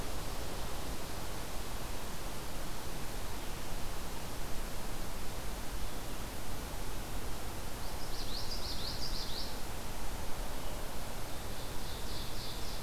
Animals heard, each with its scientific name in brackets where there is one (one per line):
Ovenbird (Seiurus aurocapilla)
Common Yellowthroat (Geothlypis trichas)